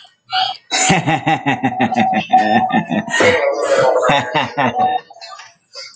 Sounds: Laughter